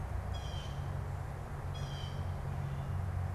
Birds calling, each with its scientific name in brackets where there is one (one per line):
Blue Jay (Cyanocitta cristata)